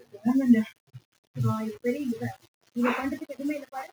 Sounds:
Sniff